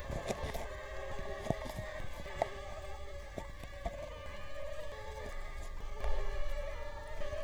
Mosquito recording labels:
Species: Culex quinquefasciatus; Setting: cup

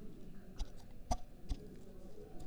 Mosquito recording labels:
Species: Mansonia uniformis; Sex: female; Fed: unfed; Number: one; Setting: cup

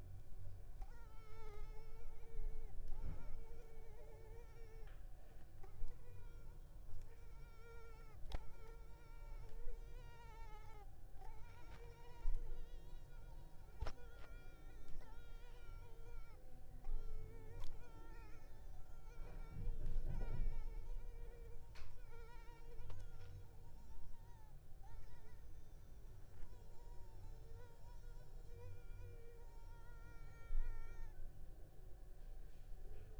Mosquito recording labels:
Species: Culex pipiens complex; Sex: female; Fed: unfed; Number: one; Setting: cup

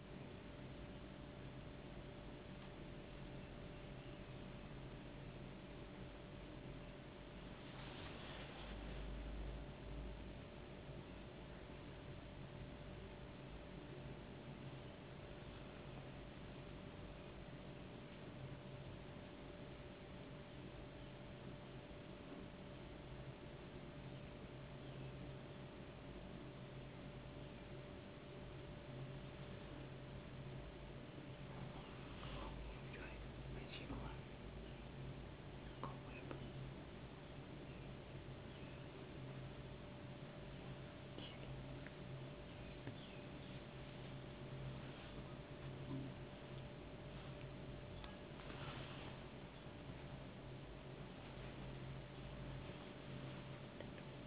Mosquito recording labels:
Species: no mosquito; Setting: insect culture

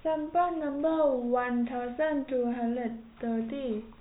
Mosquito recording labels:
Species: no mosquito; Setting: cup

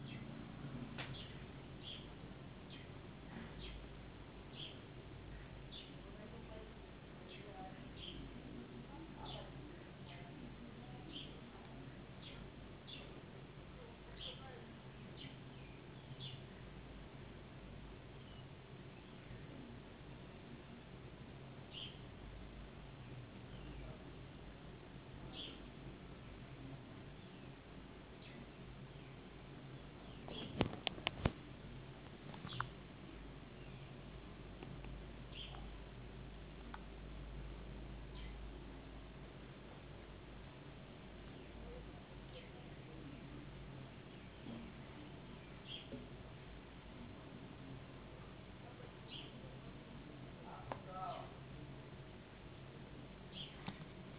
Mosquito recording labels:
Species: no mosquito; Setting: insect culture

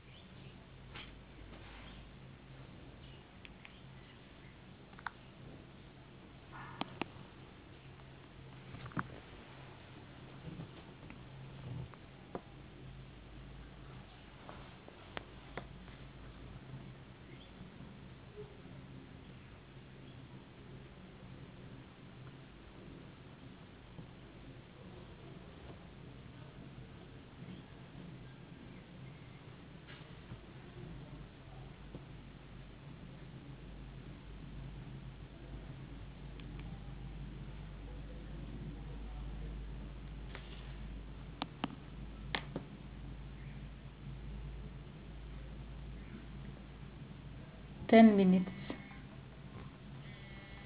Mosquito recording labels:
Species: no mosquito; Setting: insect culture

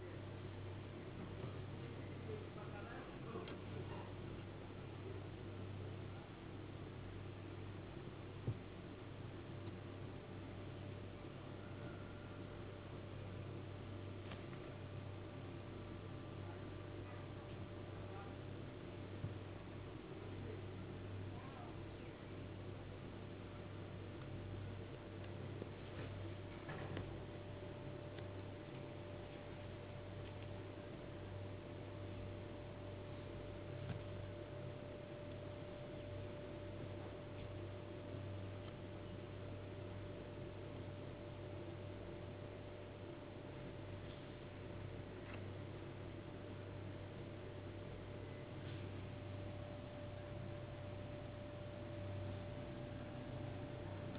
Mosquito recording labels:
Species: no mosquito; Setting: insect culture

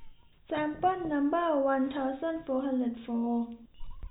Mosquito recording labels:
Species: no mosquito; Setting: cup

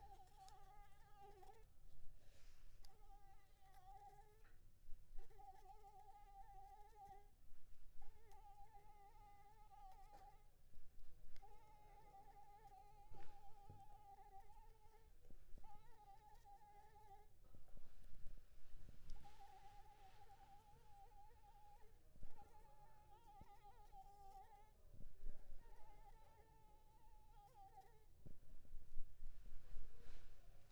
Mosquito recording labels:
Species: Anopheles gambiae s.l.; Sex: female; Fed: unfed; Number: one; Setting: cup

